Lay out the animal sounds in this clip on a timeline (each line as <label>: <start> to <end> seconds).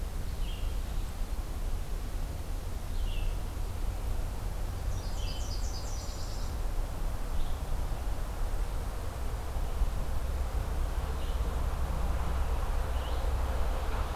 Red-eyed Vireo (Vireo olivaceus): 0.0 to 13.5 seconds
Nashville Warbler (Leiothlypis ruficapilla): 4.5 to 6.8 seconds